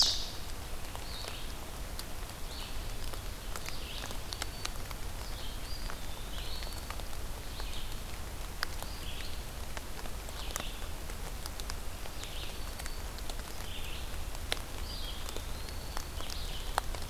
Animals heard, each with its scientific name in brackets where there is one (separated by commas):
Black-throated Green Warbler (Setophaga virens), Eastern Wood-Pewee (Contopus virens), Red-eyed Vireo (Vireo olivaceus)